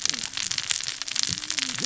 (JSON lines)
{"label": "biophony, cascading saw", "recorder": "SoundTrap 600 or HydroMoth"}